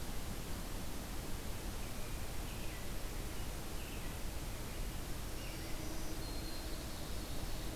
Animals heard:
American Robin (Turdus migratorius)
Black-throated Green Warbler (Setophaga virens)
Ovenbird (Seiurus aurocapilla)

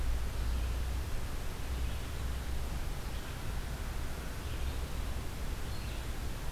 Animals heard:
Red-eyed Vireo (Vireo olivaceus)

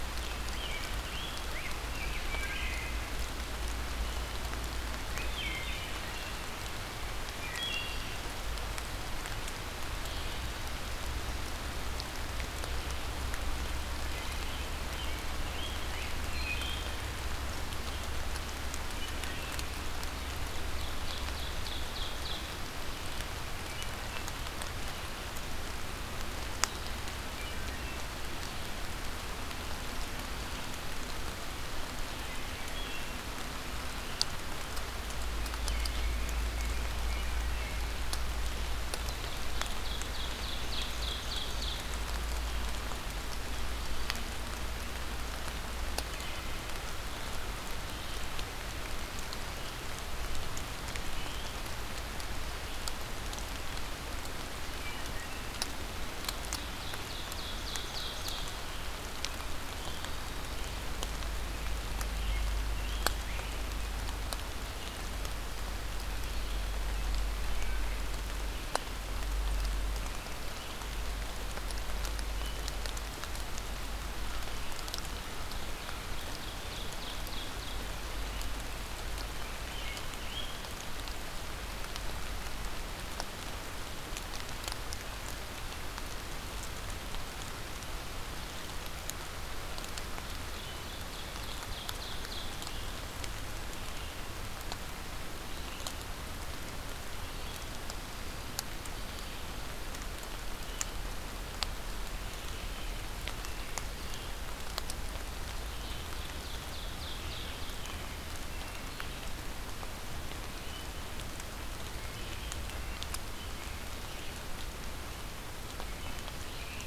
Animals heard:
Wood Thrush (Hylocichla mustelina)
American Robin (Turdus migratorius)
Rose-breasted Grosbeak (Pheucticus ludovicianus)
Red-eyed Vireo (Vireo olivaceus)
American Crow (Corvus brachyrhynchos)
Ovenbird (Seiurus aurocapilla)

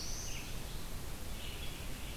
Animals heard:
Red-eyed Vireo (Vireo olivaceus)
Black-throated Blue Warbler (Setophaga caerulescens)

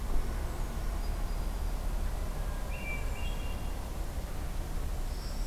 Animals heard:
Northern Parula (Setophaga americana)
Hermit Thrush (Catharus guttatus)

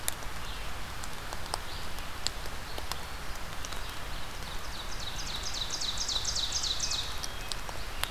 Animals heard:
Ovenbird (Seiurus aurocapilla)
Red-eyed Vireo (Vireo olivaceus)

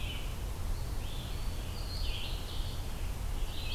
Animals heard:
Red-eyed Vireo (Vireo olivaceus)
Scarlet Tanager (Piranga olivacea)
Eastern Wood-Pewee (Contopus virens)

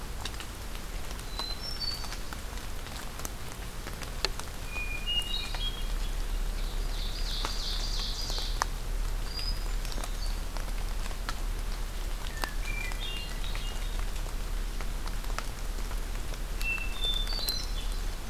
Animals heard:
Hermit Thrush (Catharus guttatus)
Ovenbird (Seiurus aurocapilla)

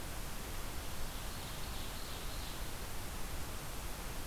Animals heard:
Ovenbird (Seiurus aurocapilla)

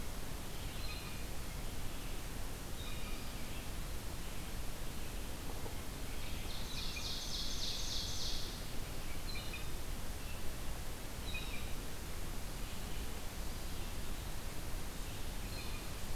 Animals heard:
Ovenbird (Seiurus aurocapilla)
Blue Jay (Cyanocitta cristata)

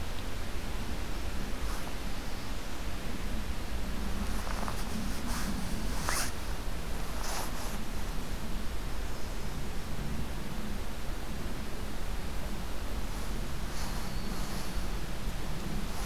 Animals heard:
unidentified call

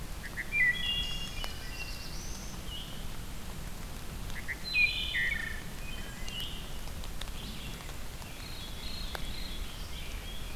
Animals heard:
Veery (Catharus fuscescens)
Red-eyed Vireo (Vireo olivaceus)
Wood Thrush (Hylocichla mustelina)
Black-throated Blue Warbler (Setophaga caerulescens)

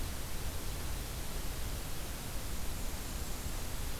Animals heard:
Blackburnian Warbler (Setophaga fusca)

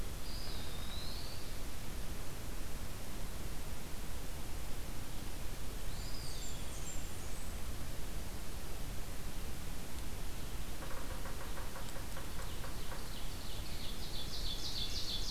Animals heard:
Ovenbird (Seiurus aurocapilla)
Red-breasted Nuthatch (Sitta canadensis)
Blackburnian Warbler (Setophaga fusca)
Yellow-bellied Sapsucker (Sphyrapicus varius)
Eastern Wood-Pewee (Contopus virens)

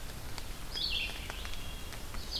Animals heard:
Red-eyed Vireo (Vireo olivaceus)
Wood Thrush (Hylocichla mustelina)

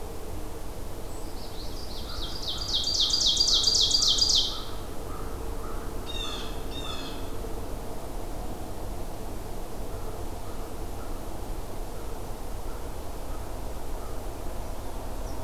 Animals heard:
American Crow (Corvus brachyrhynchos)
Blue Jay (Cyanocitta cristata)
Common Yellowthroat (Geothlypis trichas)
Ovenbird (Seiurus aurocapilla)

